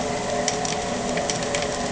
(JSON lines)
{"label": "anthrophony, boat engine", "recorder": "HydroMoth"}